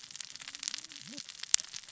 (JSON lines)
{"label": "biophony, cascading saw", "recorder": "SoundTrap 600 or HydroMoth"}